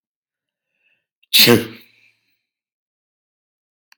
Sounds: Sneeze